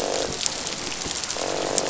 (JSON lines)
{"label": "biophony, croak", "recorder": "SoundTrap 500"}